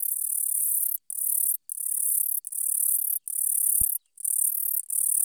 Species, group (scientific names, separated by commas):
Eugaster guyoni, Orthoptera